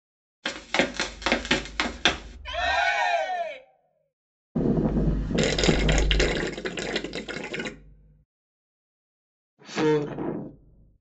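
At 0.42 seconds, someone runs. After that, at 2.44 seconds, cheering is heard. Later, at 4.55 seconds, there is wind. Meanwhile, at 5.34 seconds, you can hear gurgling. Afterwards, at 9.69 seconds, a voice says "Four."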